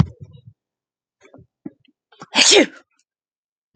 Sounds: Sneeze